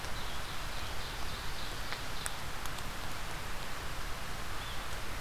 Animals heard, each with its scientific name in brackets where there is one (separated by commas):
Ovenbird (Seiurus aurocapilla)